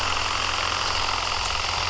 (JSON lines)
{"label": "anthrophony, boat engine", "recorder": "SoundTrap 300"}